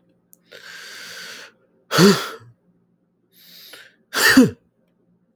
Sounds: Sneeze